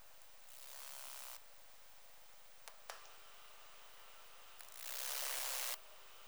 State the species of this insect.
Saga hellenica